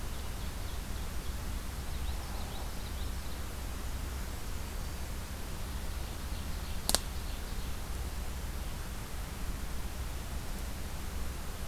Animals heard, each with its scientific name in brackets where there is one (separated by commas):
Common Yellowthroat (Geothlypis trichas), Black-throated Green Warbler (Setophaga virens)